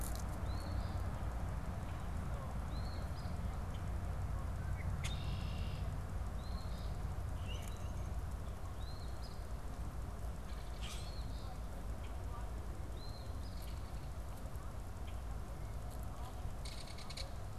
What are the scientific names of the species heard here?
Sayornis phoebe, Agelaius phoeniceus, Quiscalus quiscula, Megaceryle alcyon